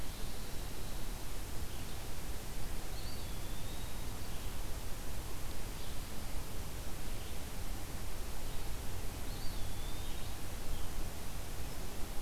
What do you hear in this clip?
Eastern Wood-Pewee